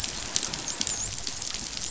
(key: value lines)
label: biophony, dolphin
recorder: SoundTrap 500